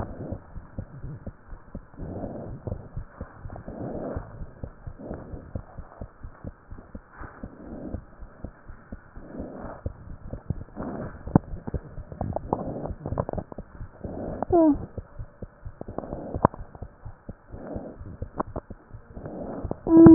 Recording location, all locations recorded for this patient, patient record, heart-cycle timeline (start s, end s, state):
tricuspid valve (TV)
pulmonary valve (PV)+tricuspid valve (TV)+mitral valve (MV)
#Age: Child
#Sex: Female
#Height: 78.0 cm
#Weight: 11.9 kg
#Pregnancy status: False
#Murmur: Absent
#Murmur locations: nan
#Most audible location: nan
#Systolic murmur timing: nan
#Systolic murmur shape: nan
#Systolic murmur grading: nan
#Systolic murmur pitch: nan
#Systolic murmur quality: nan
#Diastolic murmur timing: nan
#Diastolic murmur shape: nan
#Diastolic murmur grading: nan
#Diastolic murmur pitch: nan
#Diastolic murmur quality: nan
#Outcome: Normal
#Campaign: 2015 screening campaign
0.00	6.16	unannotated
6.16	6.30	S1
6.30	6.42	systole
6.42	6.52	S2
6.52	6.72	diastole
6.72	6.82	S1
6.82	6.90	systole
6.90	7.00	S2
7.00	7.20	diastole
7.20	7.30	S1
7.30	7.42	systole
7.42	7.52	S2
7.52	7.72	diastole
7.72	7.84	S1
7.84	7.92	systole
7.92	8.04	S2
8.04	8.22	diastole
8.22	8.32	S1
8.32	8.40	systole
8.40	8.50	S2
8.50	8.70	diastole
8.70	8.80	S1
8.80	8.88	systole
8.88	9.00	S2
9.00	9.18	diastole
9.18	9.28	S1
9.28	9.36	systole
9.36	9.46	S2
9.46	9.64	diastole
9.64	9.74	S1
9.74	9.82	systole
9.82	9.96	S2
9.96	10.12	diastole
10.12	10.24	S1
10.24	10.34	systole
10.34	10.42	S2
10.42	10.58	diastole
10.58	10.68	S1
10.68	10.76	systole
10.76	10.86	S2
10.86	11.06	diastole
11.06	11.16	S1
11.16	11.24	systole
11.24	11.36	S2
11.36	11.52	diastole
11.52	11.64	S1
11.64	11.72	systole
11.72	11.86	S2
11.86	20.14	unannotated